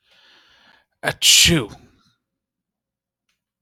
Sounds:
Sneeze